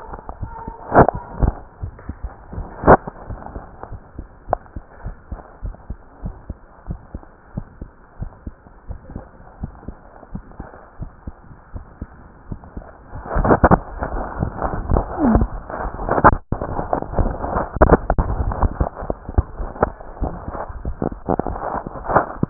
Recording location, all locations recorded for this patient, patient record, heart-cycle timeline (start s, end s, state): aortic valve (AV)
aortic valve (AV)+pulmonary valve (PV)+tricuspid valve (TV)+mitral valve (MV)
#Age: Child
#Sex: Female
#Height: 133.0 cm
#Weight: 28.8 kg
#Pregnancy status: False
#Murmur: Absent
#Murmur locations: nan
#Most audible location: nan
#Systolic murmur timing: nan
#Systolic murmur shape: nan
#Systolic murmur grading: nan
#Systolic murmur pitch: nan
#Systolic murmur quality: nan
#Diastolic murmur timing: nan
#Diastolic murmur shape: nan
#Diastolic murmur grading: nan
#Diastolic murmur pitch: nan
#Diastolic murmur quality: nan
#Outcome: Abnormal
#Campaign: 2015 screening campaign
0.00	4.85	unannotated
4.85	5.03	diastole
5.03	5.16	S1
5.16	5.29	systole
5.29	5.40	S2
5.40	5.60	diastole
5.60	5.74	S1
5.74	5.88	systole
5.88	5.98	S2
5.98	6.22	diastole
6.22	6.34	S1
6.34	6.47	systole
6.47	6.56	S2
6.56	6.88	diastole
6.88	7.00	S1
7.00	7.13	systole
7.13	7.24	S2
7.24	7.55	diastole
7.55	7.64	S1
7.64	7.78	systole
7.78	7.88	S2
7.88	8.19	diastole
8.19	8.32	S1
8.32	8.46	systole
8.46	8.56	S2
8.56	8.87	diastole
8.87	9.00	S1
9.00	9.13	systole
9.13	9.24	S2
9.24	9.61	diastole
9.61	9.70	S1
9.70	9.86	systole
9.86	9.96	S2
9.96	10.31	diastole
10.31	10.42	S1
10.42	10.57	systole
10.57	10.66	S2
10.66	10.97	diastole
10.97	11.10	S1
11.10	11.24	systole
11.24	11.36	S2
11.36	11.74	diastole
11.74	11.84	S1
11.84	11.99	systole
11.99	12.08	S2
12.08	12.48	diastole
12.48	12.60	S1
12.60	12.74	systole
12.74	12.84	S2
12.84	13.14	diastole
13.14	22.50	unannotated